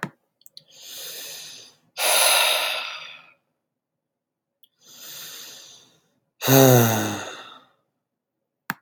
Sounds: Sigh